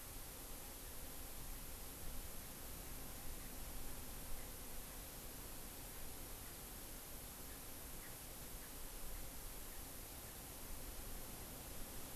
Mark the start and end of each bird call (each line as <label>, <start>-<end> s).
Erckel's Francolin (Pternistis erckelii), 7.3-9.9 s